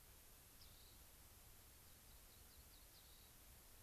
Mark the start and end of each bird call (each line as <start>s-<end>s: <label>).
0.6s-1.0s: Rock Wren (Salpinctes obsoletus)
1.7s-3.3s: Rock Wren (Salpinctes obsoletus)